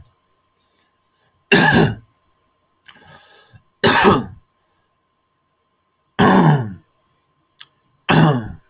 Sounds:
Cough